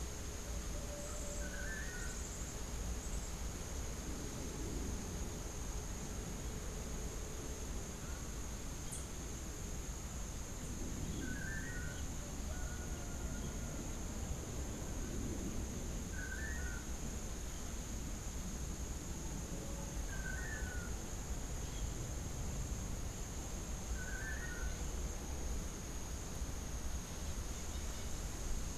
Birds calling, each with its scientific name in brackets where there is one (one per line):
Tennessee Warbler (Leiothlypis peregrina)
Yellow-faced Grassquit (Tiaris olivaceus)
Long-tailed Manakin (Chiroxiphia linearis)